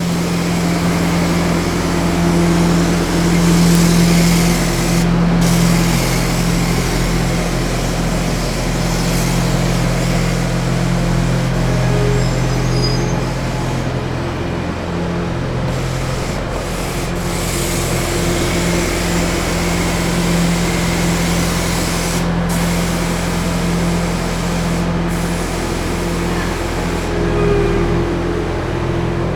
Is a cat hissing?
no